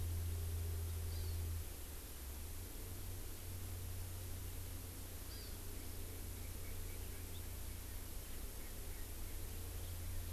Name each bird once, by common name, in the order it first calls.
Hawaii Amakihi, Erckel's Francolin, House Finch